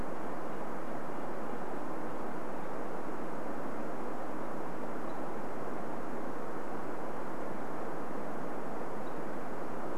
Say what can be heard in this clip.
Red-breasted Nuthatch song, unidentified bird chip note